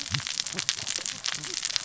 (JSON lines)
{"label": "biophony, cascading saw", "recorder": "SoundTrap 600 or HydroMoth"}